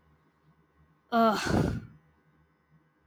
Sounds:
Sigh